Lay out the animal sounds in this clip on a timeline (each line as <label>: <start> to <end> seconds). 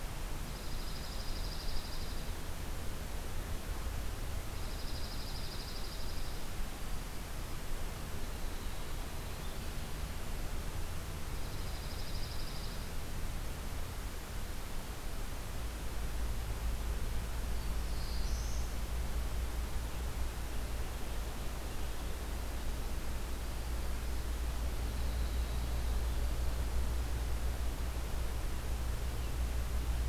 Dark-eyed Junco (Junco hyemalis): 0.3 to 2.4 seconds
Dark-eyed Junco (Junco hyemalis): 4.4 to 6.4 seconds
Dark-eyed Junco (Junco hyemalis): 11.2 to 12.9 seconds
Black-throated Blue Warbler (Setophaga caerulescens): 17.3 to 18.7 seconds
Winter Wren (Troglodytes hiemalis): 24.6 to 26.0 seconds